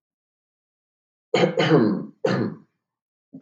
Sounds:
Throat clearing